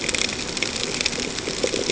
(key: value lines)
label: ambient
recorder: HydroMoth